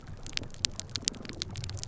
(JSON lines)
{"label": "biophony", "recorder": "SoundTrap 300"}